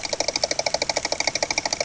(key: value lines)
label: anthrophony, boat engine
recorder: HydroMoth